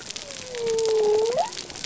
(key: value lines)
label: biophony
recorder: SoundTrap 300